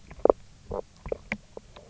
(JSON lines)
{"label": "biophony, knock croak", "recorder": "SoundTrap 300"}